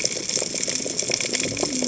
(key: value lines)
label: biophony, cascading saw
recorder: HydroMoth